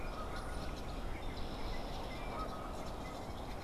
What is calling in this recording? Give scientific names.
Branta canadensis, Agelaius phoeniceus